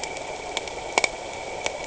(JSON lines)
{"label": "anthrophony, boat engine", "recorder": "HydroMoth"}